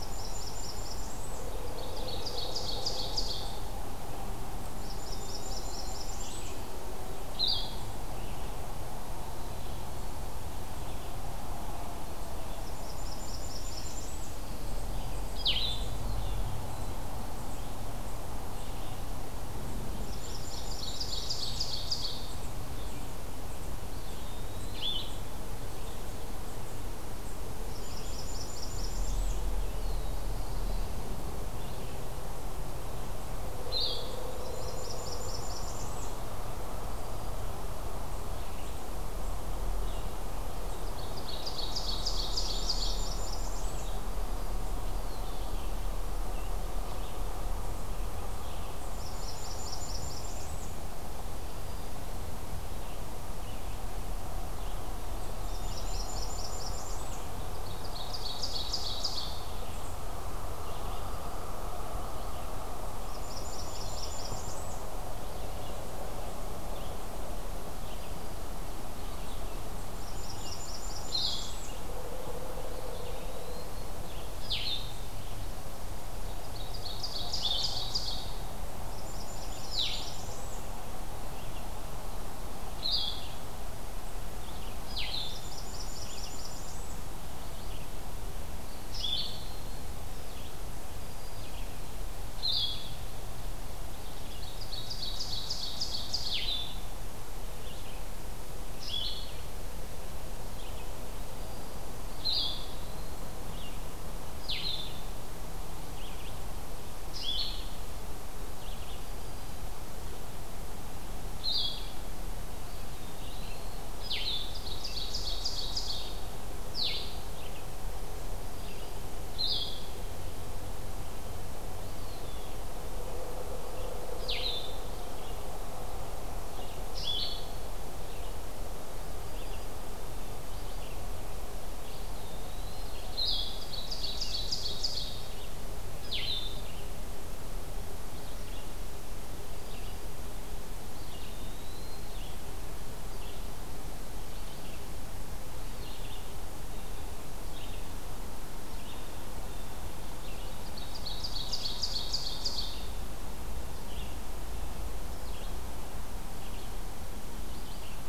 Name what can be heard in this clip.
Blackburnian Warbler, Red-eyed Vireo, Ovenbird, Eastern Wood-Pewee, Blue-headed Vireo, Black-throated Blue Warbler